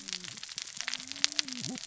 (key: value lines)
label: biophony, cascading saw
recorder: SoundTrap 600 or HydroMoth